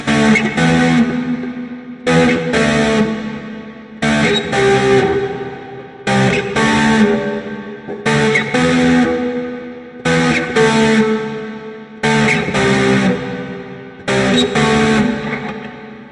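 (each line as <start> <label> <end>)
0.0 An electric guitar plays repeated chords with a dynamic tone. 16.1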